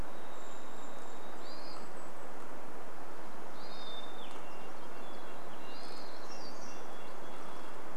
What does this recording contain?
Varied Thrush song, Golden-crowned Kinglet song, Hermit Thrush call, Hermit Thrush song, Red-breasted Nuthatch song, warbler song